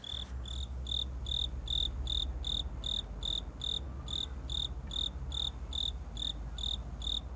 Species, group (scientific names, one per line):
Velarifictorus micado
Orthoptera